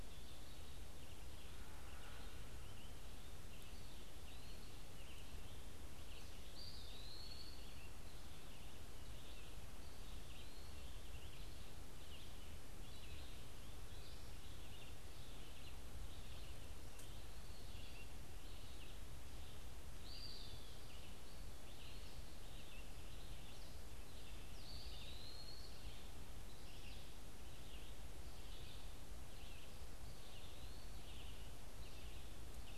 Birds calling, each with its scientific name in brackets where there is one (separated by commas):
Red-eyed Vireo (Vireo olivaceus), Eastern Wood-Pewee (Contopus virens)